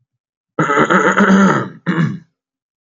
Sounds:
Throat clearing